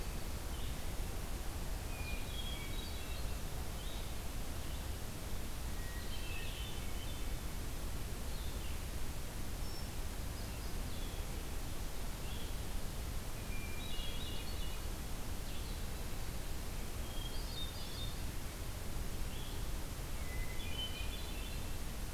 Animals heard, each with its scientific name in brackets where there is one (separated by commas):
Hermit Thrush (Catharus guttatus), Blue-headed Vireo (Vireo solitarius)